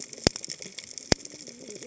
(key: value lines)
label: biophony, cascading saw
recorder: HydroMoth